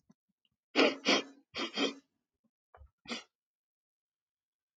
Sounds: Sniff